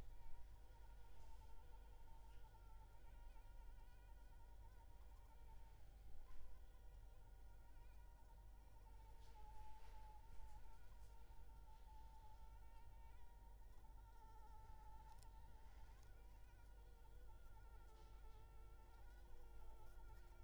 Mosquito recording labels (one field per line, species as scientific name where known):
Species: Anopheles arabiensis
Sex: female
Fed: unfed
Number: one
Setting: cup